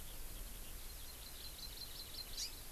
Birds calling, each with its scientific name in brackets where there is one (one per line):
Hawaii Amakihi (Chlorodrepanis virens)